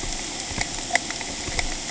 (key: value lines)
label: ambient
recorder: HydroMoth